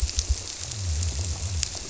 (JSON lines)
{"label": "biophony", "recorder": "SoundTrap 300"}